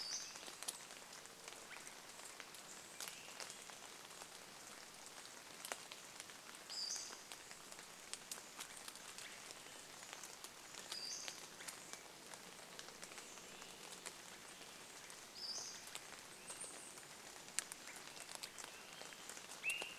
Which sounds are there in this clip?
Pacific-slope Flycatcher call, Swainson's Thrush call, rain, Chestnut-backed Chickadee call